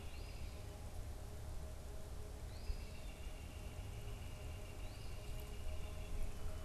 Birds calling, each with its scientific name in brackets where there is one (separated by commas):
Eastern Phoebe (Sayornis phoebe), Northern Flicker (Colaptes auratus)